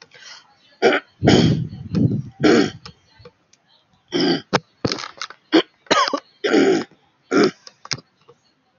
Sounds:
Throat clearing